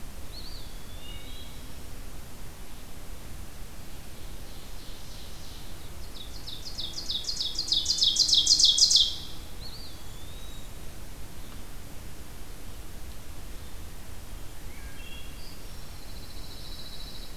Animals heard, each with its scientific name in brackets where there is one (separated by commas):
Pine Warbler (Setophaga pinus), Eastern Wood-Pewee (Contopus virens), Ovenbird (Seiurus aurocapilla), Wood Thrush (Hylocichla mustelina)